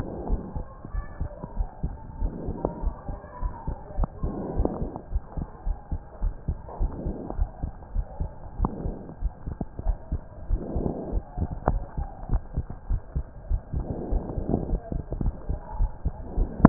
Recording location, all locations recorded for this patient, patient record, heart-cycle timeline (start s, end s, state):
pulmonary valve (PV)
aortic valve (AV)+pulmonary valve (PV)+tricuspid valve (TV)+mitral valve (MV)
#Age: Adolescent
#Sex: Male
#Height: 154.0 cm
#Weight: 35.7 kg
#Pregnancy status: False
#Murmur: Absent
#Murmur locations: nan
#Most audible location: nan
#Systolic murmur timing: nan
#Systolic murmur shape: nan
#Systolic murmur grading: nan
#Systolic murmur pitch: nan
#Systolic murmur quality: nan
#Diastolic murmur timing: nan
#Diastolic murmur shape: nan
#Diastolic murmur grading: nan
#Diastolic murmur pitch: nan
#Diastolic murmur quality: nan
#Outcome: Abnormal
#Campaign: 2015 screening campaign
0.00	0.26	unannotated
0.26	0.40	S1
0.40	0.54	systole
0.54	0.66	S2
0.66	0.90	diastole
0.90	1.04	S1
1.04	1.18	systole
1.18	1.30	S2
1.30	1.56	diastole
1.56	1.68	S1
1.68	1.82	systole
1.82	1.96	S2
1.96	2.18	diastole
2.18	2.32	S1
2.32	2.44	systole
2.44	2.54	S2
2.54	2.80	diastole
2.80	2.94	S1
2.94	3.08	systole
3.08	3.18	S2
3.18	3.42	diastole
3.42	3.52	S1
3.52	3.66	systole
3.66	3.76	S2
3.76	3.96	diastole
3.96	4.10	S1
4.10	4.22	systole
4.22	4.34	S2
4.34	4.56	diastole
4.56	4.72	S1
4.72	4.80	systole
4.80	4.90	S2
4.90	5.12	diastole
5.12	5.22	S1
5.22	5.36	systole
5.36	5.46	S2
5.46	5.66	diastole
5.66	5.78	S1
5.78	5.90	systole
5.90	6.00	S2
6.00	6.22	diastole
6.22	6.34	S1
6.34	6.46	systole
6.46	6.56	S2
6.56	6.78	diastole
6.78	6.92	S1
6.92	7.04	systole
7.04	7.14	S2
7.14	7.36	diastole
7.36	7.50	S1
7.50	7.62	systole
7.62	7.72	S2
7.72	7.94	diastole
7.94	8.06	S1
8.06	8.18	systole
8.18	8.32	S2
8.32	8.56	diastole
8.56	8.70	S1
8.70	8.83	systole
8.83	8.96	S2
8.96	9.20	diastole
9.20	9.32	S1
9.32	9.45	systole
9.45	9.56	S2
9.56	9.84	diastole
9.84	9.98	S1
9.98	10.10	systole
10.10	10.20	S2
10.20	10.48	diastole
10.48	10.62	S1
10.62	10.74	systole
10.74	10.90	S2
10.90	11.10	diastole
11.10	11.24	S1
11.24	11.38	systole
11.38	11.48	S2
11.48	11.66	diastole
11.66	11.84	S1
11.84	11.96	systole
11.96	12.08	S2
12.08	12.30	diastole
12.30	12.42	S1
12.42	12.56	systole
12.56	12.66	S2
12.66	12.88	diastole
12.88	13.00	S1
13.00	13.14	systole
13.14	13.26	S2
13.26	13.48	diastole
13.48	13.62	S1
13.62	13.74	systole
13.74	13.88	S2
13.88	14.10	diastole
14.10	14.24	S1
14.24	14.36	systole
14.36	14.46	S2
14.46	14.68	diastole
14.68	14.80	S1
14.80	14.92	systole
14.92	15.04	S2
15.04	15.22	diastole
15.22	15.36	S1
15.36	15.48	systole
15.48	15.60	S2
15.60	15.78	diastole
15.78	15.92	S1
15.92	16.04	systole
16.04	16.14	S2
16.14	16.36	diastole
16.36	16.47	S1
16.47	16.69	unannotated